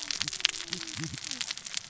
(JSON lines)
{"label": "biophony, cascading saw", "recorder": "SoundTrap 600 or HydroMoth"}